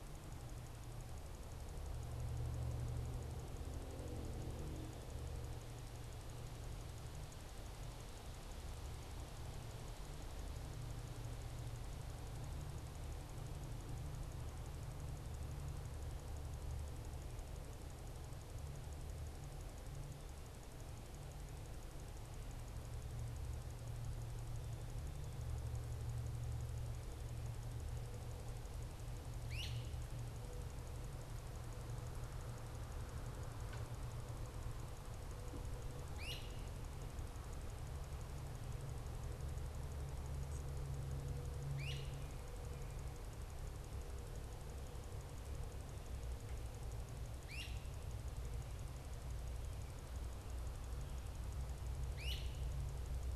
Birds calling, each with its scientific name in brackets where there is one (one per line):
Great Crested Flycatcher (Myiarchus crinitus)